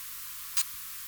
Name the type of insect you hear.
orthopteran